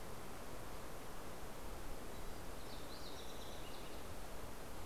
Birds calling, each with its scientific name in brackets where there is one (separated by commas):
Fox Sparrow (Passerella iliaca)